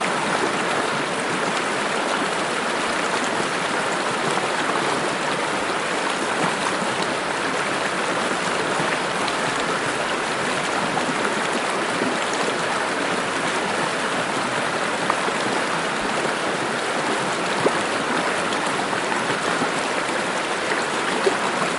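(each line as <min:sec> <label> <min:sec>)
0:00.1 Water runs powerfully down a mountain. 0:21.3
0:17.5 Water bubbling. 0:18.4
0:20.8 Water bubbling. 0:21.8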